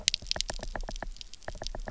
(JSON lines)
{"label": "biophony, knock", "recorder": "SoundTrap 300"}